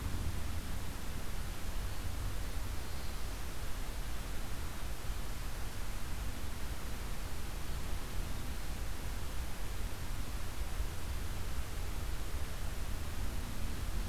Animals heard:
forest ambience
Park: Marsh-Billings-Rockefeller National Historical Park